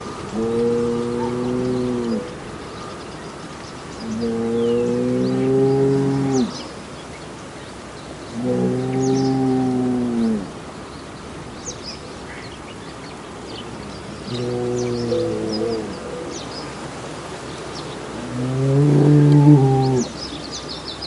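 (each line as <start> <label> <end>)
0.0 A crow caws and a cow moos. 2.4
0.0 Birds chirping in the background. 21.1
4.0 A cow moos from a distance. 6.6
8.4 A crow caws and a cow moos. 10.5
14.3 A bell is ringing. 16.1
14.3 A crow caws and a cow moos. 16.1
18.3 A cow moos loudly. 20.2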